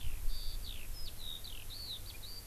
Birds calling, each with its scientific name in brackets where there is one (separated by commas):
Eurasian Skylark (Alauda arvensis)